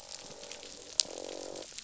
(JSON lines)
{"label": "biophony, croak", "recorder": "SoundTrap 500"}